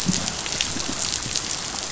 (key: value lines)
label: biophony, growl
recorder: SoundTrap 500